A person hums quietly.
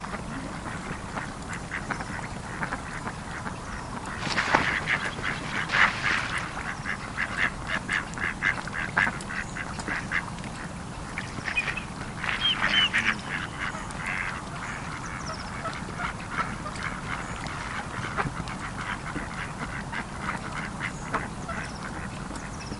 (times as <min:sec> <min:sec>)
0:12.8 0:13.3